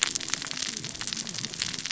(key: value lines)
label: biophony, cascading saw
recorder: SoundTrap 600 or HydroMoth